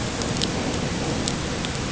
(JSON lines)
{"label": "ambient", "recorder": "HydroMoth"}